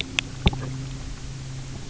{"label": "anthrophony, boat engine", "recorder": "SoundTrap 300"}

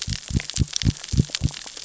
{"label": "biophony", "recorder": "SoundTrap 600 or HydroMoth"}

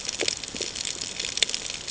{"label": "ambient", "recorder": "HydroMoth"}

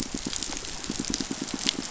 {"label": "biophony, pulse", "recorder": "SoundTrap 500"}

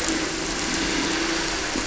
{"label": "anthrophony, boat engine", "recorder": "SoundTrap 300"}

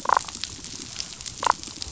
{"label": "biophony, damselfish", "recorder": "SoundTrap 500"}
{"label": "biophony", "recorder": "SoundTrap 500"}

